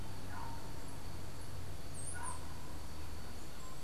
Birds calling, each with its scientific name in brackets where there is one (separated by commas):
unidentified bird